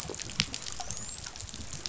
{"label": "biophony, dolphin", "recorder": "SoundTrap 500"}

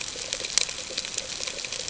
{"label": "ambient", "recorder": "HydroMoth"}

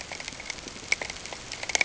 {"label": "ambient", "recorder": "HydroMoth"}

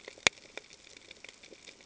{"label": "ambient", "recorder": "HydroMoth"}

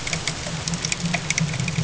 {"label": "ambient", "recorder": "HydroMoth"}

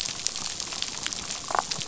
{"label": "biophony, damselfish", "recorder": "SoundTrap 500"}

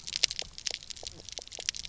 {"label": "biophony, pulse", "recorder": "SoundTrap 300"}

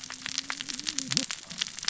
{"label": "biophony, cascading saw", "recorder": "SoundTrap 600 or HydroMoth"}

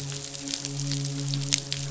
{"label": "biophony, midshipman", "recorder": "SoundTrap 500"}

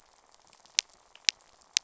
{"label": "biophony, rattle", "recorder": "SoundTrap 500"}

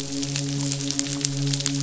{"label": "biophony, midshipman", "recorder": "SoundTrap 500"}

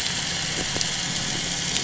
{"label": "anthrophony, boat engine", "recorder": "SoundTrap 500"}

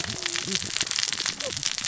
{"label": "biophony, cascading saw", "recorder": "SoundTrap 600 or HydroMoth"}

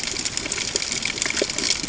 {"label": "ambient", "recorder": "HydroMoth"}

